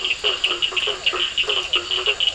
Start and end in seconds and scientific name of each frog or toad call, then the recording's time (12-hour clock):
0.0	2.3	Boana faber
0.0	2.3	Elachistocleis bicolor
0.0	2.3	Physalaemus cuvieri
0.0	2.3	Sphaenorhynchus surdus
0.8	2.3	Scinax perereca
9:30pm